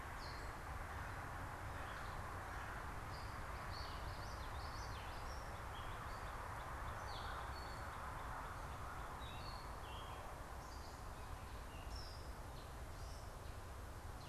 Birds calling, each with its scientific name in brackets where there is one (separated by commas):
Northern Cardinal (Cardinalis cardinalis), Common Yellowthroat (Geothlypis trichas), Gray Catbird (Dumetella carolinensis)